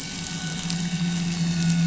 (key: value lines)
label: anthrophony, boat engine
recorder: SoundTrap 500